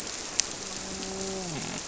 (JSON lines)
{"label": "biophony, grouper", "recorder": "SoundTrap 300"}